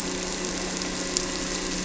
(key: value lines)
label: anthrophony, boat engine
recorder: SoundTrap 300